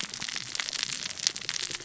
{"label": "biophony, cascading saw", "recorder": "SoundTrap 600 or HydroMoth"}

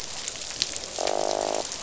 {"label": "biophony, croak", "recorder": "SoundTrap 500"}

